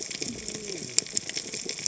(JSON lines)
{"label": "biophony, cascading saw", "recorder": "HydroMoth"}